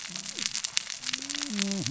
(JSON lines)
{"label": "biophony, cascading saw", "recorder": "SoundTrap 600 or HydroMoth"}